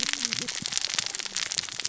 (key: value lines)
label: biophony, cascading saw
recorder: SoundTrap 600 or HydroMoth